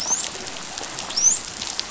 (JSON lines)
{"label": "biophony, dolphin", "recorder": "SoundTrap 500"}